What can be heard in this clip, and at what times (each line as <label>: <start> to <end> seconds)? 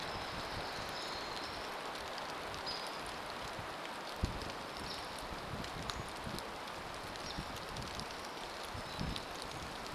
Pacific Wren song: 0 to 2 seconds
unidentified bird chip note: 0 to 2 seconds
warbler song: 0 to 2 seconds
rain: 0 to 10 seconds
Hairy Woodpecker call: 2 to 8 seconds
unidentified bird chip note: 8 to 10 seconds
warbler song: 8 to 10 seconds